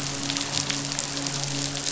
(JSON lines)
{"label": "biophony, midshipman", "recorder": "SoundTrap 500"}